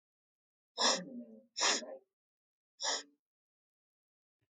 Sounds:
Sniff